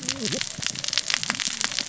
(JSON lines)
{"label": "biophony, cascading saw", "recorder": "SoundTrap 600 or HydroMoth"}